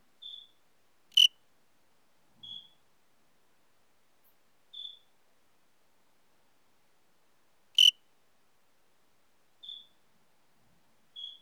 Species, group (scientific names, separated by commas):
Eugryllodes pipiens, Orthoptera